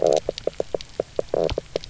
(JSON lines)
{"label": "biophony, knock croak", "recorder": "SoundTrap 300"}